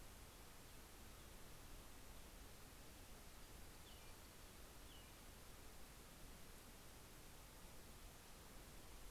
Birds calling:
American Robin (Turdus migratorius)

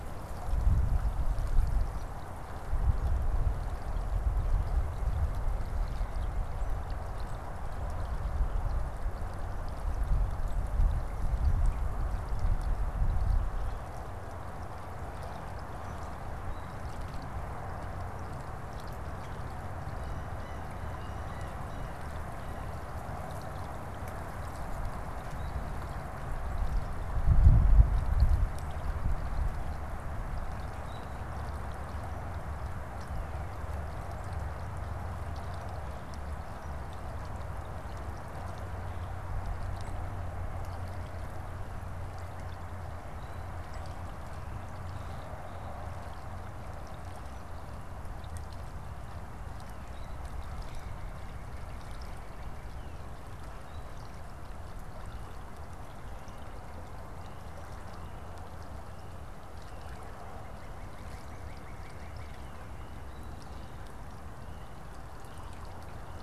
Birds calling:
Northern Cardinal (Cardinalis cardinalis), Blue Jay (Cyanocitta cristata)

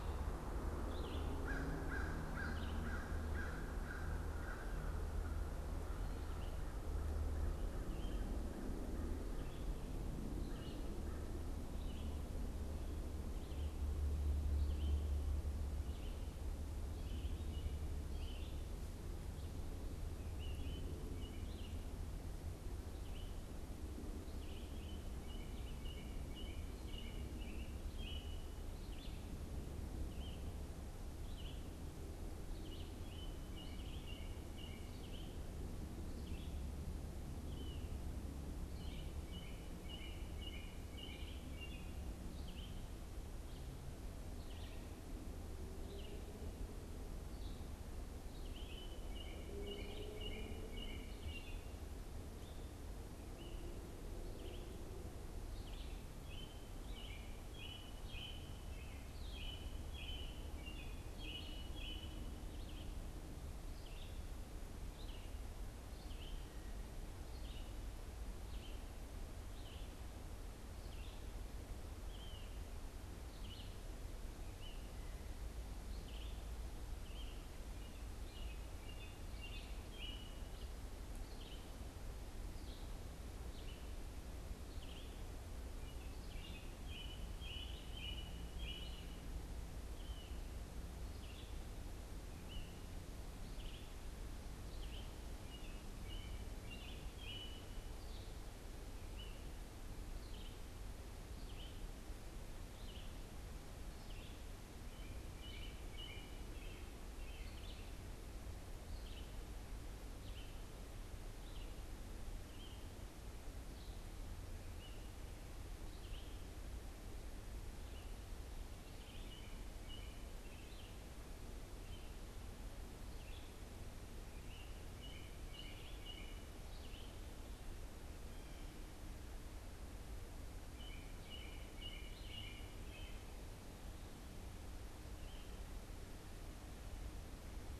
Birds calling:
Red-eyed Vireo (Vireo olivaceus), American Robin (Turdus migratorius)

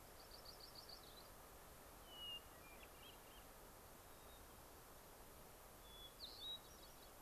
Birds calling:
Yellow-rumped Warbler (Setophaga coronata), Hermit Thrush (Catharus guttatus), White-crowned Sparrow (Zonotrichia leucophrys)

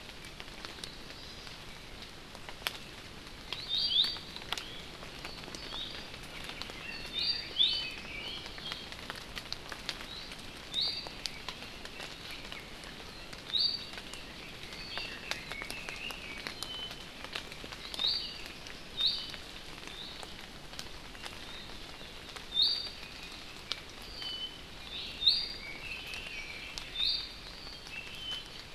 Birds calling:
Iiwi (Drepanis coccinea), Red-billed Leiothrix (Leiothrix lutea)

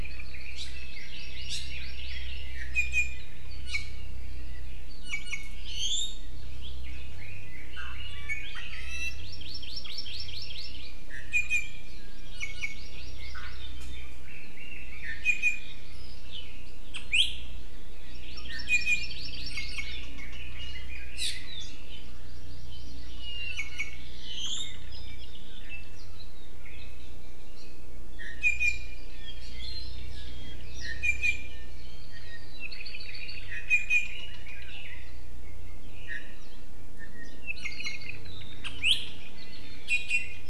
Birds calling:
Hawaii Amakihi (Chlorodrepanis virens), Apapane (Himatione sanguinea), Iiwi (Drepanis coccinea), Red-billed Leiothrix (Leiothrix lutea)

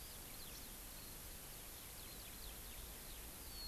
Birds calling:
Hawaii Amakihi (Chlorodrepanis virens)

